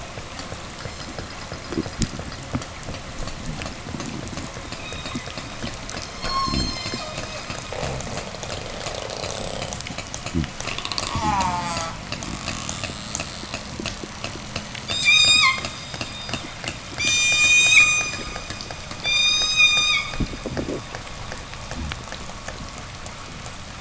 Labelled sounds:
0.6	1.4	killer whale, southern resident, 2.3 to 8.0 kHz
4.5	5.6	killer whale, southern resident, 0 to 7.3 kHz
5.9	7.5	killer whale, southern resident, 0 to 8.0 kHz
6.4	10.6	fish, 0 to 0.50 kHz
7.4	11.3	killer whale, 0 to 8.0 kHz
10.9	12.0	killer whale, southern resident, call S04, 0 to 8.0 kHz
14.8	16.0	killer whale, southern resident, 0 to 8.0 kHz
16.9	20.7	killer whale, southern resident, 0 to 8.0 kHz

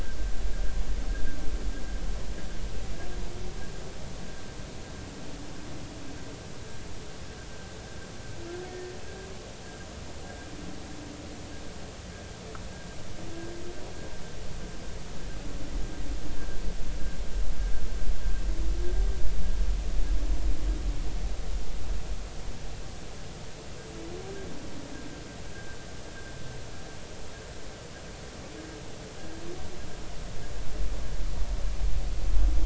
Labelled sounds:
8.7	8.9	humpback whale, 1.8 to 1.9 kHz

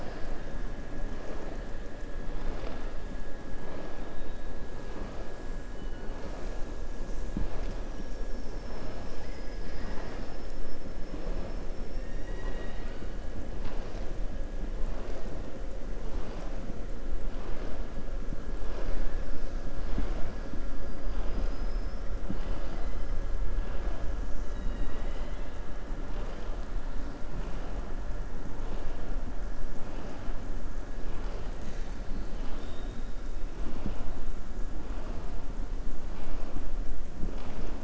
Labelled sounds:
11.9	13.0	killer whale, southern resident, 0.86 to 5.7 kHz
21.0	22.0	killer whale, southern resident, 2.4 to 5.6 kHz
32.0	33.1	killer whale, southern resident, 1.1 to 5.5 kHz

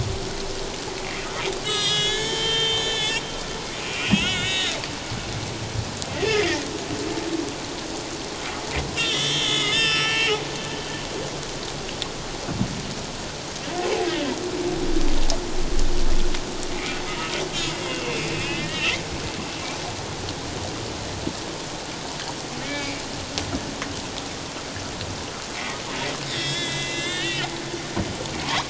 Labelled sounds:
1.6	3.2	humpback whale, 1.6 to 8.0 kHz
3.7	4.8	humpback whale, 1.3 to 4.0 kHz
6.1	6.6	humpback whale, 1.7 to 2.2 kHz
9.0	10.3	humpback whale, 1.2 to 5.8 kHz
16.7	17.3	humpback whale, 1.2 to 2.4 kHz
17.9	18.9	humpback whale, 1.7 to 3.2 kHz
22.6	23.0	humpback whale, 2.1 to 2.4 kHz
26.3	27.5	humpback whale, 1.6 to 4.0 kHz
28.4	28.6	humpback whale, 0.81 to 1.3 kHz

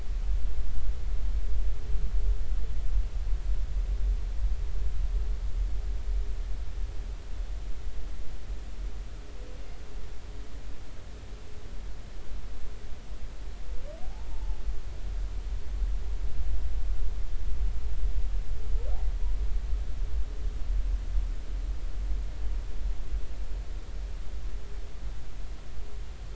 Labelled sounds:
14.0	14.6	humpback whale, 0.80 to 0.99 kHz

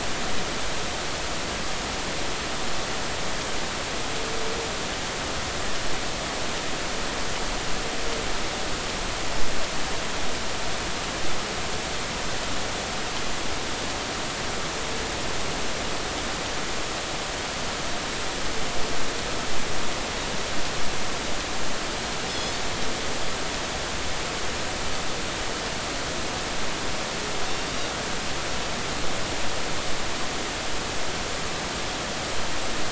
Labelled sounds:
22.3	22.5	Pacific white-sided dolphin, 3.3 to 5.2 kHz

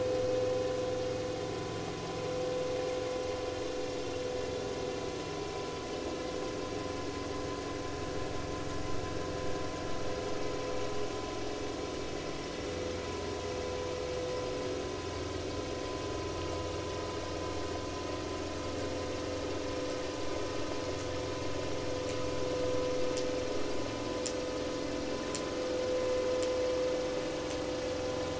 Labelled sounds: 17.3	17.5	vessel noise, 5.5 to 5.6 kHz

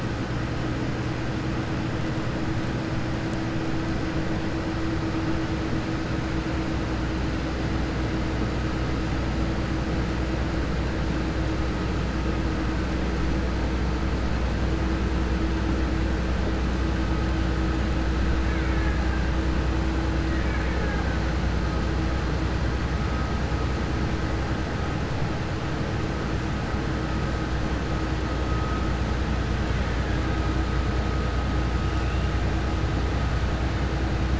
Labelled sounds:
18.4	19.1	killer whale, Bigg's (transient), 0.89 to 2.9 kHz
20.3	21.1	killer whale, Bigg's (transient), 0.80 to 2.9 kHz

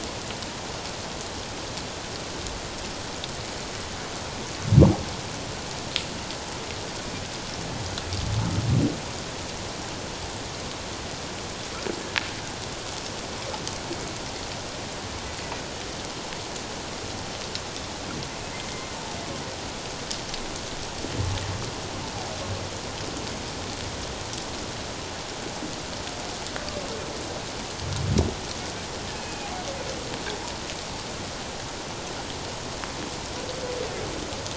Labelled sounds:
18.7	19.0	humpback whale, 2.0 to 2.2 kHz
29.1	29.5	humpback whale, 2.4 to 2.6 kHz

